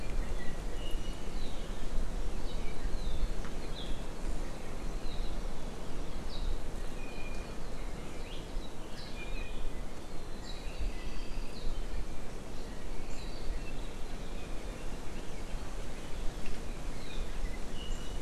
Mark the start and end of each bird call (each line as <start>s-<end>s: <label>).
0.0s-1.3s: Iiwi (Drepanis coccinea)
6.8s-7.6s: Iiwi (Drepanis coccinea)
9.0s-9.8s: Iiwi (Drepanis coccinea)
10.6s-11.6s: Apapane (Himatione sanguinea)
17.7s-18.2s: Iiwi (Drepanis coccinea)